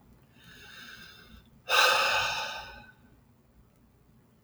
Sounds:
Sigh